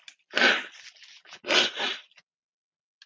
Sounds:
Sniff